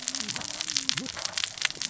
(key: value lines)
label: biophony, cascading saw
recorder: SoundTrap 600 or HydroMoth